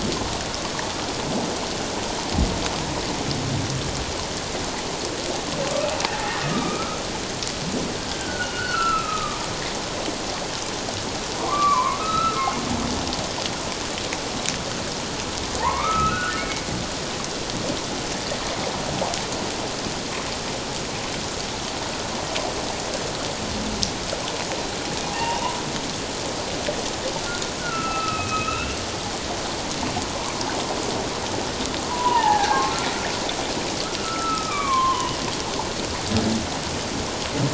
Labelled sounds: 6.0	7.0	humpback whale, 0.78 to 2.5 kHz
8.1	9.4	humpback whale, 1.1 to 2.8 kHz
11.4	12.4	humpback whale, 0.91 to 4.0 kHz
15.6	16.6	humpback whale, 0.81 to 2.7 kHz
25.1	25.4	humpback whale, 0.78 to 2.9 kHz
27.6	28.8	humpback whale, 1.2 to 2.8 kHz
31.9	32.6	humpback whale, 0.78 to 1.9 kHz
34.0	35.2	humpback whale, 0.94 to 3.3 kHz

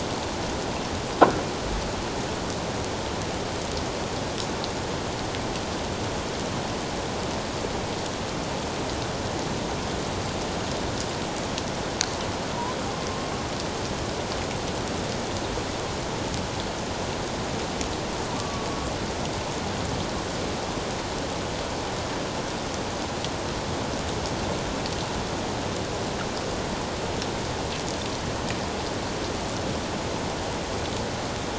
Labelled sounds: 18.4	18.7	killer whale, northern resident, A clan, AA subclan, A04 pod, 1.1 to 1.2 kHz

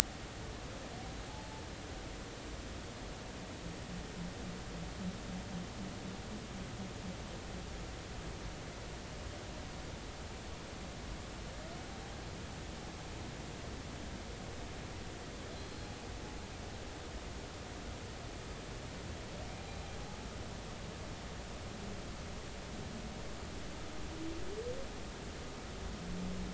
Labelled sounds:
1.3	1.6	humpback whale, 0.80 to 0.93 kHz
15.5	15.9	humpback whale, 4.0 to 4.2 kHz
19.6	19.9	humpback whale, 3.9 to 4.1 kHz

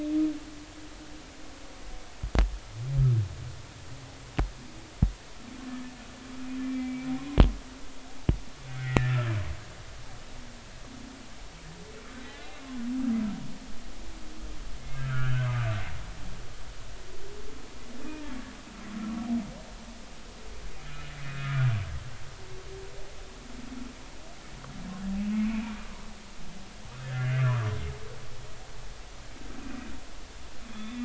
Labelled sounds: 6.6	7.1	humpback whale, 2.2 to 2.4 kHz
8.7	9.3	humpback whale, 1.4 to 2.2 kHz
15.0	15.5	humpback whale, 1.2 to 3.1 kHz
21.2	21.7	humpback whale, 1.2 to 2.6 kHz
25.1	25.8	humpback whale, 2.2 to 2.8 kHz
27.0	27.7	humpback whale, 0.96 to 2.6 kHz
30.7	31.0	humpback whale, 3.2 to 3.7 kHz

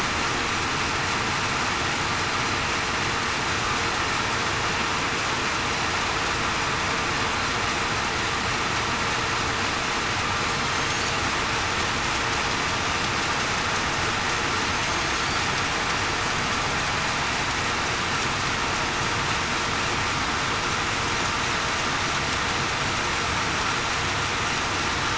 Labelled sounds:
14.7	15.2	killer whale, southern resident, 6.3 to 6.6 kHz

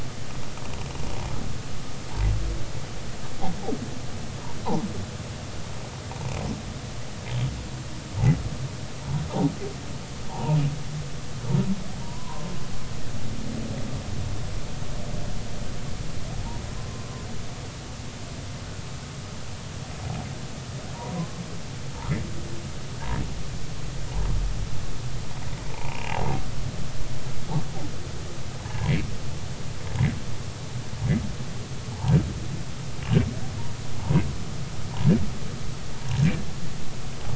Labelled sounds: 10.3	10.6	humpback whale, 0.80 to 1.0 kHz
12.0	12.5	humpback whale, 0.90 to 1.1 kHz
16.8	17.1	humpback whale, 0.99 to 1.1 kHz
21.1	21.4	humpback whale, 0.96 to 1.1 kHz
25.7	26.2	humpback whale, 0.80 to 2.9 kHz
26.6	27.1	humpback whale, 2.2 to 2.6 kHz

